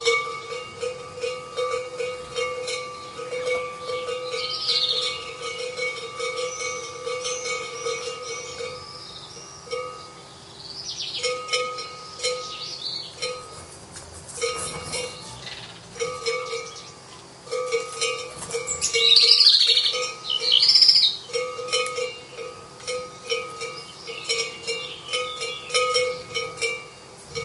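Cowbells ring repeatedly. 0:00.0 - 0:18.1
A bird chirps loudly. 0:18.4 - 0:21.4
Cowbells ringing. 0:21.6 - 0:27.3

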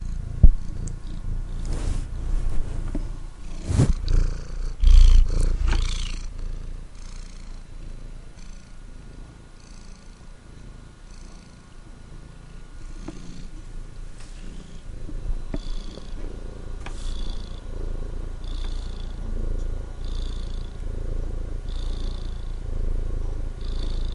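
A cat is purring. 0:00.0 - 0:24.1

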